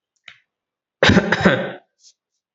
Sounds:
Cough